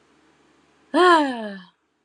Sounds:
Sigh